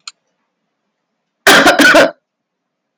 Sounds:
Cough